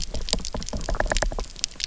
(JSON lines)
{"label": "biophony, knock", "recorder": "SoundTrap 300"}